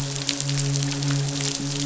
{"label": "biophony, midshipman", "recorder": "SoundTrap 500"}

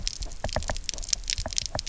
{"label": "biophony, knock", "recorder": "SoundTrap 300"}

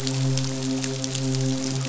{"label": "biophony, midshipman", "recorder": "SoundTrap 500"}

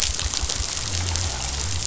{"label": "biophony", "recorder": "SoundTrap 500"}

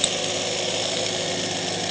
{"label": "anthrophony, boat engine", "recorder": "HydroMoth"}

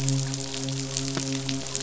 {"label": "biophony, midshipman", "recorder": "SoundTrap 500"}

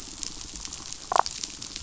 {"label": "biophony, damselfish", "recorder": "SoundTrap 500"}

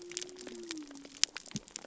{"label": "biophony", "recorder": "SoundTrap 300"}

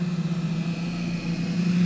{"label": "anthrophony, boat engine", "recorder": "SoundTrap 500"}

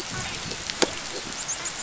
{"label": "biophony, dolphin", "recorder": "SoundTrap 500"}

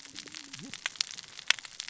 {"label": "biophony, cascading saw", "recorder": "SoundTrap 600 or HydroMoth"}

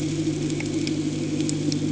{"label": "anthrophony, boat engine", "recorder": "HydroMoth"}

